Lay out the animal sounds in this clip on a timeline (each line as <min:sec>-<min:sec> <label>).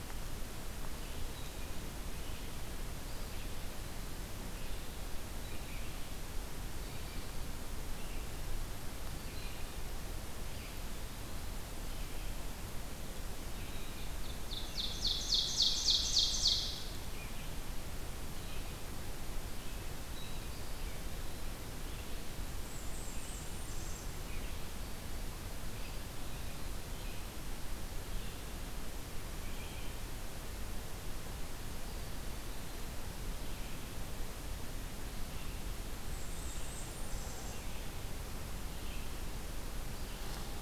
0:00.0-0:12.5 Red-eyed Vireo (Vireo olivaceus)
0:14.0-0:17.0 Ovenbird (Seiurus aurocapilla)
0:20.0-0:20.7 Blue Jay (Cyanocitta cristata)
0:22.5-0:24.2 Blackburnian Warbler (Setophaga fusca)
0:25.5-0:40.6 Red-eyed Vireo (Vireo olivaceus)
0:36.0-0:37.9 Blackburnian Warbler (Setophaga fusca)